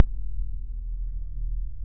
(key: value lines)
label: anthrophony, boat engine
recorder: SoundTrap 300